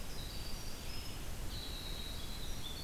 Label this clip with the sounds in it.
Red-eyed Vireo, Winter Wren